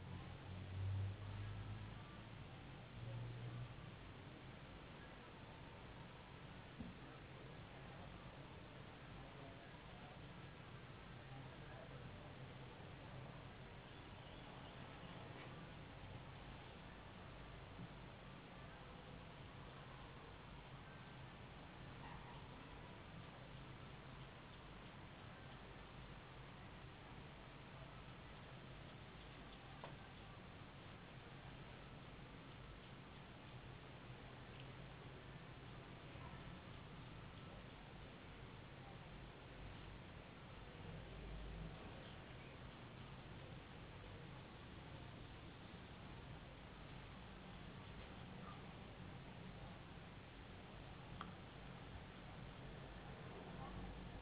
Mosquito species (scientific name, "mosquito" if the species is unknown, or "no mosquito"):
no mosquito